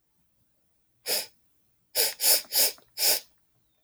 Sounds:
Sniff